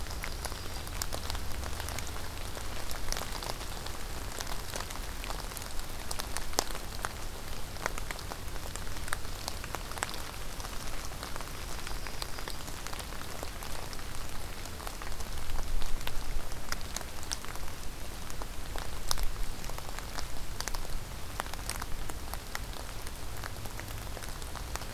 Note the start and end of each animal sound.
0.0s-1.1s: Yellow-rumped Warbler (Setophaga coronata)
9.1s-9.9s: Golden-crowned Kinglet (Regulus satrapa)
11.5s-12.8s: Yellow-rumped Warbler (Setophaga coronata)

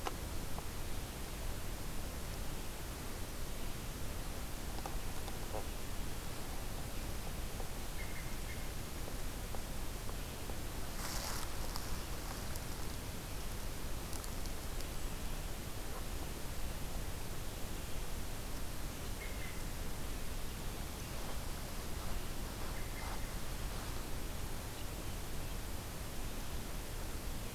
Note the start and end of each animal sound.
0.6s-1.7s: American Robin (Turdus migratorius)
7.6s-8.8s: American Robin (Turdus migratorius)
19.0s-19.9s: American Robin (Turdus migratorius)
22.6s-23.4s: American Robin (Turdus migratorius)

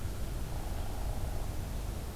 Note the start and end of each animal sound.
0.5s-1.6s: Hairy Woodpecker (Dryobates villosus)

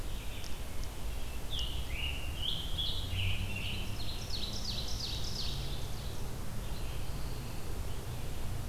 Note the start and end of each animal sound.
0.0s-8.7s: Red-eyed Vireo (Vireo olivaceus)
1.2s-4.0s: Scarlet Tanager (Piranga olivacea)
3.7s-6.2s: Ovenbird (Seiurus aurocapilla)
6.9s-7.8s: Pine Warbler (Setophaga pinus)

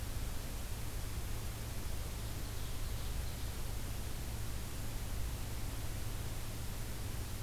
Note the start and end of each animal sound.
2.0s-3.6s: Ovenbird (Seiurus aurocapilla)

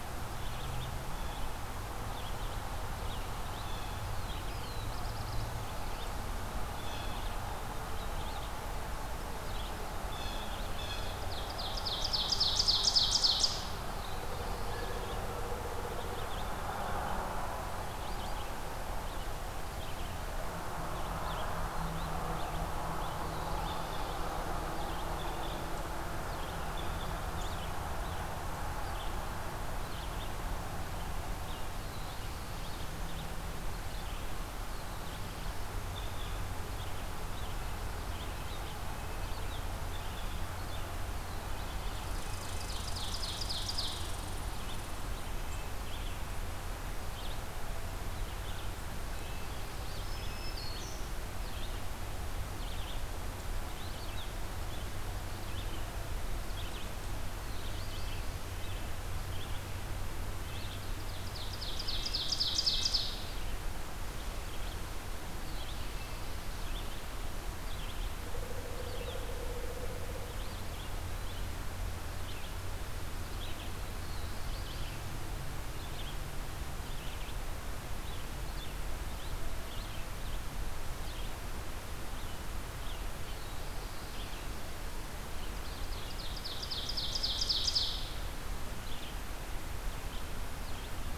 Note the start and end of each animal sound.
0.0s-81.5s: Red-eyed Vireo (Vireo olivaceus)
3.5s-4.0s: Blue Jay (Cyanocitta cristata)
3.9s-5.6s: Black-throated Blue Warbler (Setophaga caerulescens)
6.7s-7.3s: Blue Jay (Cyanocitta cristata)
10.1s-11.3s: Blue Jay (Cyanocitta cristata)
10.9s-13.9s: Ovenbird (Seiurus aurocapilla)
23.1s-24.3s: Black-throated Blue Warbler (Setophaga caerulescens)
31.7s-32.9s: Black-throated Blue Warbler (Setophaga caerulescens)
34.5s-35.8s: Black-throated Blue Warbler (Setophaga caerulescens)
38.7s-39.6s: Red-breasted Nuthatch (Sitta canadensis)
41.2s-42.8s: Red-breasted Nuthatch (Sitta canadensis)
41.6s-44.3s: Ovenbird (Seiurus aurocapilla)
41.9s-45.1s: Red Squirrel (Tamiasciurus hudsonicus)
49.1s-50.7s: Red-breasted Nuthatch (Sitta canadensis)
49.7s-51.2s: Black-throated Green Warbler (Setophaga virens)
57.8s-58.8s: Red-breasted Nuthatch (Sitta canadensis)
60.8s-63.1s: Ovenbird (Seiurus aurocapilla)
61.7s-63.0s: Red-breasted Nuthatch (Sitta canadensis)
68.2s-70.4s: Pileated Woodpecker (Dryocopus pileatus)
73.6s-75.1s: Black-throated Blue Warbler (Setophaga caerulescens)
81.9s-91.2s: Red-eyed Vireo (Vireo olivaceus)
83.0s-84.3s: Black-throated Blue Warbler (Setophaga caerulescens)
85.4s-88.3s: Ovenbird (Seiurus aurocapilla)

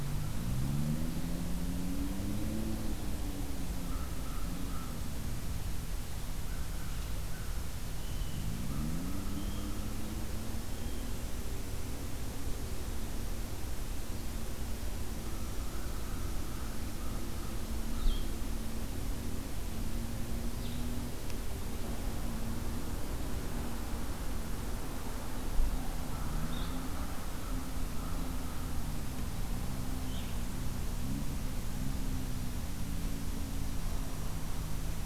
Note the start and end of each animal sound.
3.6s-10.0s: American Crow (Corvus brachyrhynchos)
9.3s-11.2s: Blue Jay (Cyanocitta cristata)
15.1s-18.6s: American Crow (Corvus brachyrhynchos)
20.4s-20.8s: Blue-headed Vireo (Vireo solitarius)
26.0s-28.9s: American Crow (Corvus brachyrhynchos)
26.4s-26.9s: Blue-headed Vireo (Vireo solitarius)
30.0s-30.5s: Blue-headed Vireo (Vireo solitarius)

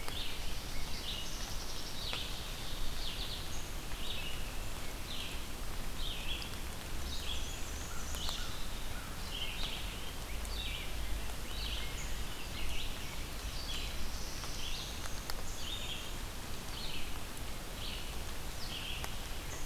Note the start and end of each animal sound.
0.0s-1.0s: Rose-breasted Grosbeak (Pheucticus ludovicianus)
0.0s-19.2s: Red-eyed Vireo (Vireo olivaceus)
1.1s-2.9s: Black-capped Chickadee (Poecile atricapillus)
6.7s-8.4s: Black-and-white Warbler (Mniotilta varia)
7.8s-9.4s: American Crow (Corvus brachyrhynchos)
9.5s-13.5s: Rose-breasted Grosbeak (Pheucticus ludovicianus)
13.5s-15.2s: Black-throated Blue Warbler (Setophaga caerulescens)
15.3s-16.2s: Black-capped Chickadee (Poecile atricapillus)

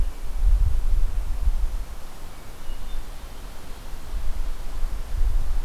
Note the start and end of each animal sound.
2.3s-3.2s: Hermit Thrush (Catharus guttatus)

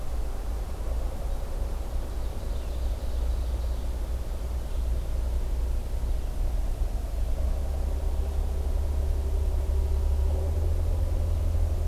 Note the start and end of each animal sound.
1.6s-4.2s: Ovenbird (Seiurus aurocapilla)

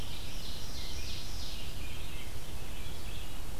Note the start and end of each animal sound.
0.0s-1.7s: Ovenbird (Seiurus aurocapilla)
0.0s-3.6s: Red-eyed Vireo (Vireo olivaceus)

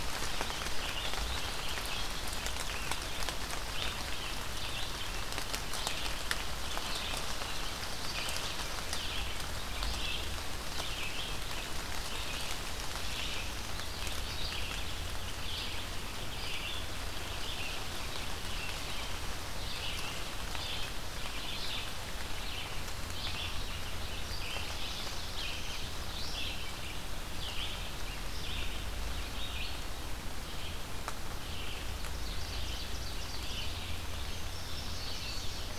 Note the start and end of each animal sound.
0.2s-35.8s: Red-eyed Vireo (Vireo olivaceus)
24.4s-25.9s: Black-throated Blue Warbler (Setophaga caerulescens)
32.0s-33.8s: Ovenbird (Seiurus aurocapilla)
34.0s-35.8s: Indigo Bunting (Passerina cyanea)

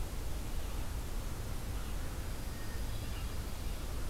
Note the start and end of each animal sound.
0.3s-4.1s: Red-eyed Vireo (Vireo olivaceus)
2.1s-4.1s: Hermit Thrush (Catharus guttatus)

